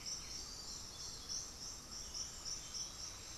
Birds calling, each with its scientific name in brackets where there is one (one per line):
Black-throated Antbird (Myrmophylax atrothorax)